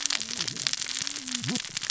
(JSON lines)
{"label": "biophony, cascading saw", "recorder": "SoundTrap 600 or HydroMoth"}